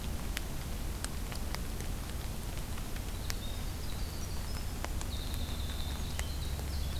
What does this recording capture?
Winter Wren